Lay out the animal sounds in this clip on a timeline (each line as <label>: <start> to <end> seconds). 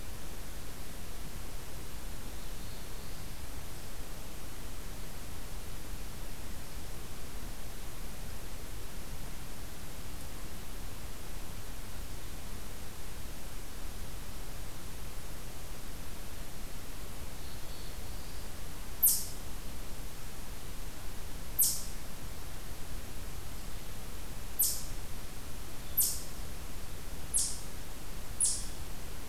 Black-throated Blue Warbler (Setophaga caerulescens): 2.1 to 3.8 seconds
Black-throated Blue Warbler (Setophaga caerulescens): 17.2 to 18.5 seconds